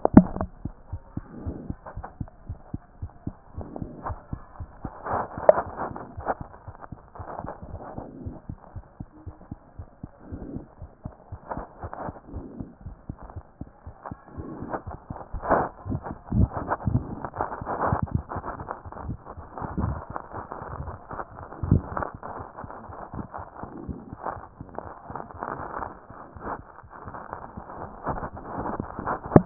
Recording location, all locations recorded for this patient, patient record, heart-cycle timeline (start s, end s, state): aortic valve (AV)
aortic valve (AV)+mitral valve (MV)
#Age: Child
#Sex: Female
#Height: 78.0 cm
#Weight: 12.7 kg
#Pregnancy status: False
#Murmur: Absent
#Murmur locations: nan
#Most audible location: nan
#Systolic murmur timing: nan
#Systolic murmur shape: nan
#Systolic murmur grading: nan
#Systolic murmur pitch: nan
#Systolic murmur quality: nan
#Diastolic murmur timing: nan
#Diastolic murmur shape: nan
#Diastolic murmur grading: nan
#Diastolic murmur pitch: nan
#Diastolic murmur quality: nan
#Outcome: Abnormal
#Campaign: 2014 screening campaign
0.00	0.35	unannotated
0.35	0.38	diastole
0.38	0.48	S1
0.48	0.64	systole
0.64	0.74	S2
0.74	0.90	diastole
0.90	1.00	S1
1.00	1.17	systole
1.17	1.25	S2
1.25	1.44	diastole
1.44	1.54	S1
1.54	1.68	systole
1.68	1.76	S2
1.76	1.96	diastole
1.96	2.06	S1
2.06	2.20	systole
2.20	2.28	S2
2.28	2.48	diastole
2.48	2.58	S1
2.58	2.72	systole
2.72	2.82	S2
2.82	3.00	diastole
3.00	3.10	S1
3.10	3.26	systole
3.26	3.36	S2
3.36	3.56	diastole
3.56	3.68	S1
3.68	3.80	systole
3.80	3.88	S2
3.88	4.06	diastole
4.06	4.18	S1
4.18	4.32	systole
4.32	4.42	S2
4.42	4.60	diastole
4.60	4.70	S1
4.70	4.84	systole
4.84	4.92	S2
4.92	5.12	diastole
5.12	29.46	unannotated